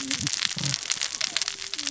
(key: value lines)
label: biophony, cascading saw
recorder: SoundTrap 600 or HydroMoth